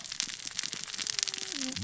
{"label": "biophony, cascading saw", "recorder": "SoundTrap 600 or HydroMoth"}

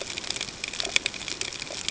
{"label": "ambient", "recorder": "HydroMoth"}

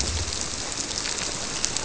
{"label": "biophony", "recorder": "SoundTrap 300"}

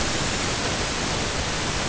{"label": "ambient", "recorder": "HydroMoth"}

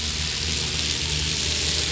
{"label": "anthrophony, boat engine", "recorder": "SoundTrap 500"}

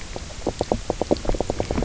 {"label": "biophony, knock croak", "recorder": "SoundTrap 300"}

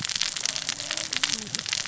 {"label": "biophony, cascading saw", "recorder": "SoundTrap 600 or HydroMoth"}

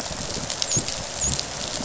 {"label": "biophony, dolphin", "recorder": "SoundTrap 500"}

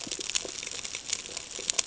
{"label": "ambient", "recorder": "HydroMoth"}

